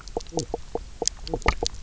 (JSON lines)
{"label": "biophony, knock croak", "recorder": "SoundTrap 300"}